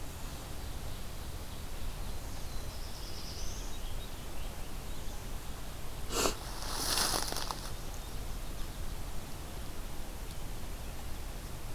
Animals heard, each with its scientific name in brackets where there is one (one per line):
Rose-breasted Grosbeak (Pheucticus ludovicianus)
Ovenbird (Seiurus aurocapilla)
Black-throated Blue Warbler (Setophaga caerulescens)